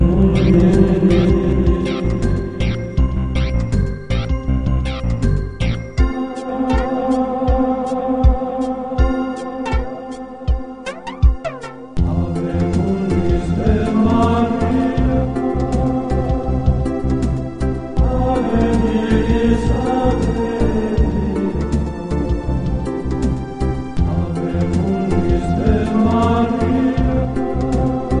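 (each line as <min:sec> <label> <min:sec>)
0:00.0 Male choir singing professionally. 0:02.7
0:02.9 Rhythmic beat of bass and percussion in a reggae style. 0:11.5
0:11.9 Male choir singing professionally. 0:23.5
0:24.1 Male choir singing professionally. 0:28.2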